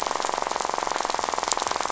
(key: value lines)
label: biophony, rattle
recorder: SoundTrap 500